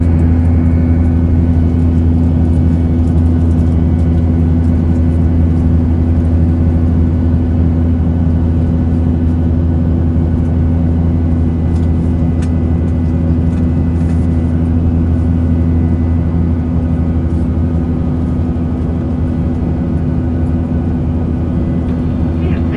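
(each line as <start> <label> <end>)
0.0 The muffled sound of an airplane engine running in the background. 22.8
22.3 An inaudible announcement being made on an airplane. 22.8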